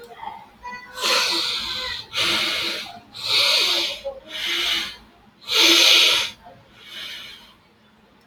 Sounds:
Sigh